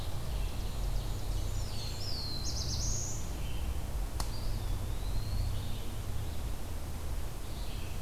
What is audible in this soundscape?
Red-eyed Vireo, Ovenbird, Blackburnian Warbler, Black-throated Blue Warbler, Eastern Wood-Pewee